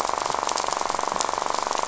{"label": "biophony, rattle", "recorder": "SoundTrap 500"}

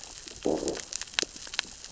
{"label": "biophony, growl", "recorder": "SoundTrap 600 or HydroMoth"}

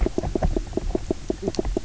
{"label": "biophony, knock croak", "recorder": "SoundTrap 300"}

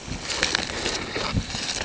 {"label": "ambient", "recorder": "HydroMoth"}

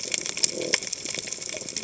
{"label": "biophony", "recorder": "HydroMoth"}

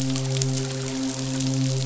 {"label": "biophony, midshipman", "recorder": "SoundTrap 500"}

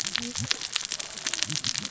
{"label": "biophony, cascading saw", "recorder": "SoundTrap 600 or HydroMoth"}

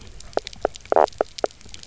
{"label": "biophony, knock croak", "recorder": "SoundTrap 300"}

